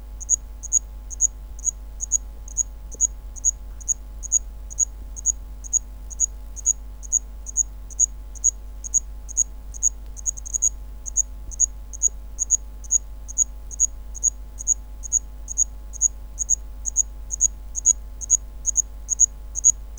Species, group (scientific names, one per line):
Zvenella geniculata
Orthoptera